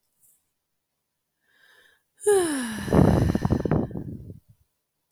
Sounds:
Sigh